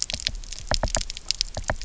{"label": "biophony, knock", "recorder": "SoundTrap 300"}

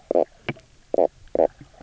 {"label": "biophony, knock croak", "recorder": "SoundTrap 300"}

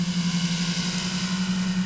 {"label": "anthrophony, boat engine", "recorder": "SoundTrap 500"}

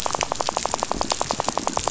{"label": "biophony, rattle", "recorder": "SoundTrap 500"}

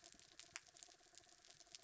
{"label": "anthrophony, mechanical", "recorder": "SoundTrap 300"}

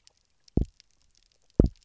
{"label": "biophony, double pulse", "recorder": "SoundTrap 300"}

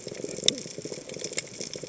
{"label": "biophony, chatter", "recorder": "HydroMoth"}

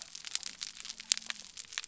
{"label": "biophony", "recorder": "SoundTrap 300"}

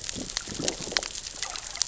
{"label": "biophony, growl", "recorder": "SoundTrap 600 or HydroMoth"}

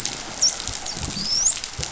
{"label": "biophony, dolphin", "recorder": "SoundTrap 500"}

